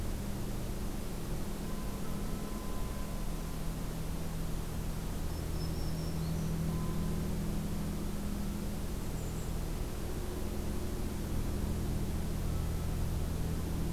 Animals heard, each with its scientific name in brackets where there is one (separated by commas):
Golden-crowned Kinglet (Regulus satrapa), Black-throated Green Warbler (Setophaga virens)